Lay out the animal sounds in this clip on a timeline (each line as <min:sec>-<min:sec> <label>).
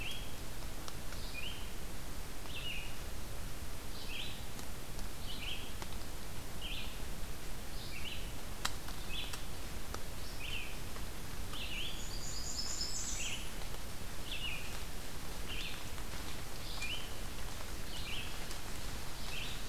0:00.0-0:19.7 Red-eyed Vireo (Vireo olivaceus)
0:11.6-0:13.7 Blackburnian Warbler (Setophaga fusca)